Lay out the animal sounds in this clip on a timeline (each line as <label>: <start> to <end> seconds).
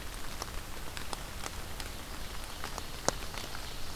Ovenbird (Seiurus aurocapilla): 2.2 to 4.0 seconds